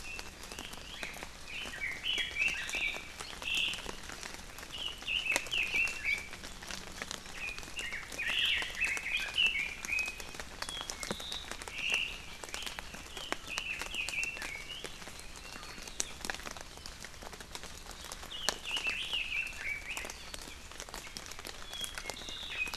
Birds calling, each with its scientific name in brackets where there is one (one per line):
Omao (Myadestes obscurus)
Red-billed Leiothrix (Leiothrix lutea)
Apapane (Himatione sanguinea)